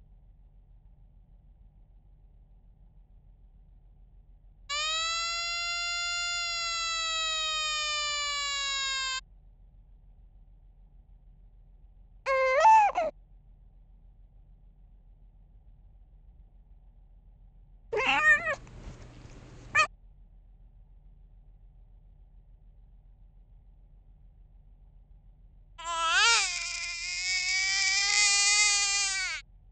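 A soft background noise persists. At 4.7 seconds, a siren can be heard. Then, at 12.3 seconds, crying is heard. After that, at 17.9 seconds, a cat meows. Later, at 25.8 seconds, you can hear crying.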